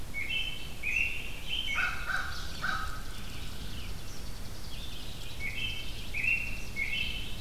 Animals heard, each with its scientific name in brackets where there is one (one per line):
American Robin (Turdus migratorius)
Eastern Kingbird (Tyrannus tyrannus)
American Crow (Corvus brachyrhynchos)
Chipping Sparrow (Spizella passerina)
Red-eyed Vireo (Vireo olivaceus)